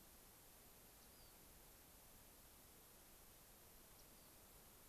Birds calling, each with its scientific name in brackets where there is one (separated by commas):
Rock Wren (Salpinctes obsoletus)